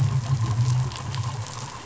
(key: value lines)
label: anthrophony, boat engine
recorder: SoundTrap 500